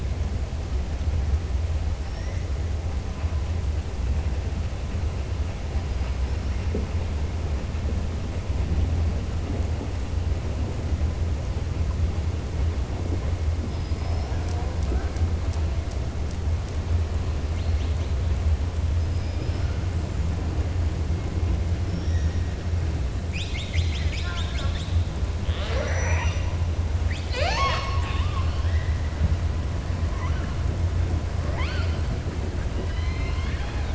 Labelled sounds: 2.0	2.4	killer whale, southern resident, 5.1 to 6.6 kHz
19.0	19.7	killer whale, southern resident, 4.9 to 5.4 kHz
21.8	22.3	killer whale, southern resident, 5.3 to 6.7 kHz
31.4	32.0	killer whale, southern resident, 0.60 to 5.1 kHz
32.7	33.9	killer whale, southern resident, 0.83 to 4.9 kHz

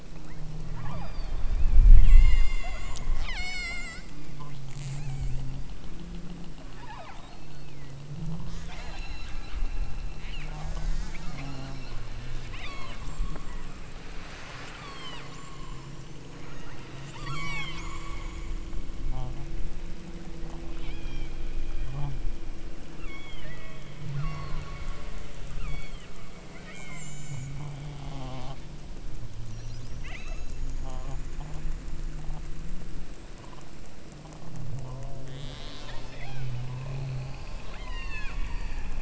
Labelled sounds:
0.7	1.6	killer whale, southern Alaska resident, 0.46 to 5.0 kHz
1.9	4.2	killer whale, southern Alaska resident, 0.52 to 8.0 kHz
4.7	5.6	killer whale, southern Alaska resident, 0.57 to 8.0 kHz
6.7	7.9	killer whale, southern Alaska resident, 0.48 to 7.7 kHz
8.5	9.5	killer whale, southern Alaska resident, 0.46 to 8.0 kHz
10.1	12.1	killer whale, southern Alaska resident, 0.37 to 8.0 kHz
12.5	15.9	killer whale, southern Alaska resident, 0.43 to 8.0 kHz
16.5	18.5	killer whale, southern Alaska resident, 0.64 to 8.0 kHz
20.4	21.4	killer whale, southern Alaska resident, 0.55 to 5.9 kHz
22.9	24.8	killer whale, southern Alaska resident, 0.82 to 6.3 kHz
25.5	26.2	killer whale, southern Alaska resident, 0.94 to 5.8 kHz
26.6	27.6	killer whale, southern Alaska resident, 1.1 to 8.0 kHz
30.0	30.7	killer whale, southern Alaska resident, 0.68 to 5.5 kHz
35.3	36.7	killer whale, southern Alaska resident, 0.43 to 8.0 kHz
37.7	39.0	killer whale, southern Alaska resident, 0.68 to 8.0 kHz

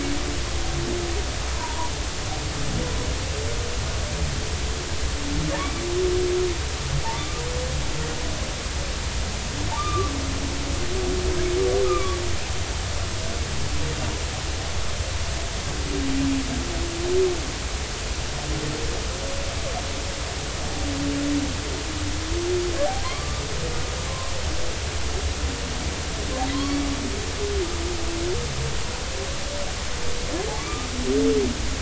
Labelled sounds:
1.5	1.9	humpback whale, 0.86 to 1.1 kHz
5.6	5.8	humpback whale, 2.2 to 2.4 kHz
7.1	7.4	humpback whale, 1.1 to 1.2 kHz
9.8	10.1	humpback whale, 1.1 to 2.5 kHz
11.8	12.2	humpback whale, 1.1 to 2.5 kHz
23.0	24.3	humpback whale, 0.96 to 1.2 kHz
26.5	26.8	humpback whale, 0.99 to 1.2 kHz
30.6	30.9	humpback whale, 1.1 to 1.2 kHz

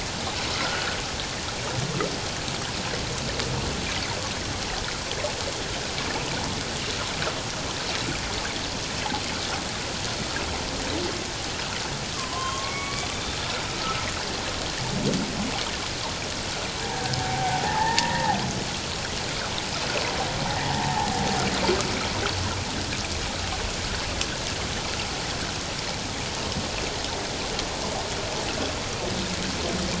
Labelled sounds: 0.5	1.0	humpback whale, 1.2 to 1.5 kHz
12.1	13.1	humpback whale, 0.97 to 3.2 kHz
16.8	18.4	humpback whale, 0.78 to 2.0 kHz
20.7	21.2	humpback whale, 0.78 to 0.97 kHz

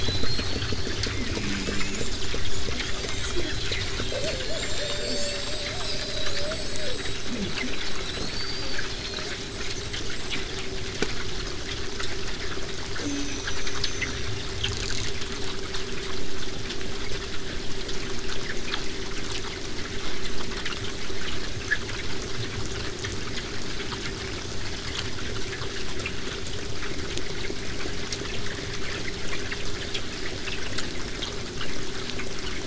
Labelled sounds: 0.0	10.4	killer whale, southern resident, 0.23 to 8.0 kHz
13.0	14.2	killer whale, southern resident, J pod, call S04, 2.2 to 8.0 kHz
15.0	20.0	vessel noise, 0 to 8.0 kHz

